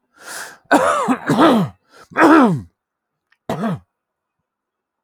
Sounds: Throat clearing